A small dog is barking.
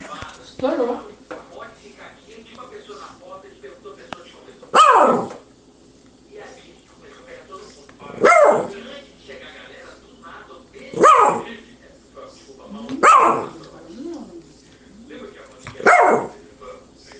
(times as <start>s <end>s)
4.6s 5.4s, 8.0s 8.8s, 10.8s 11.6s, 12.8s 13.6s, 15.7s 16.5s